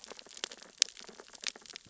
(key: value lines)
label: biophony, sea urchins (Echinidae)
recorder: SoundTrap 600 or HydroMoth